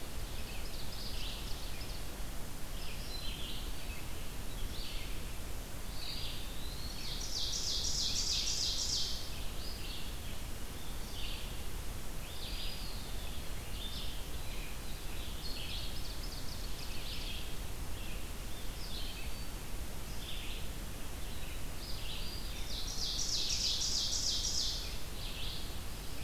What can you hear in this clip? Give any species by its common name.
Ovenbird, Red-eyed Vireo, Black-throated Green Warbler, Eastern Wood-Pewee